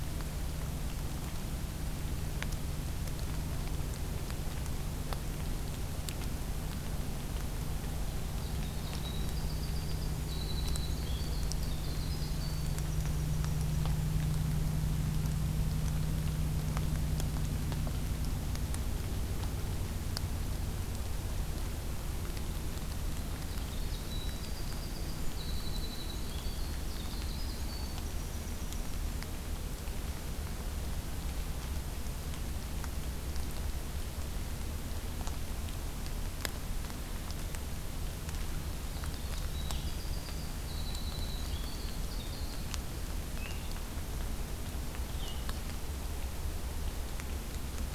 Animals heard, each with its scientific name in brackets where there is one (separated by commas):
Blue-headed Vireo (Vireo solitarius), Winter Wren (Troglodytes hiemalis)